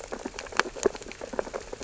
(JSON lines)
{"label": "biophony, sea urchins (Echinidae)", "recorder": "SoundTrap 600 or HydroMoth"}